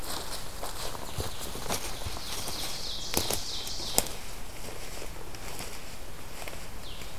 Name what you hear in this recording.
Blue-headed Vireo, Ovenbird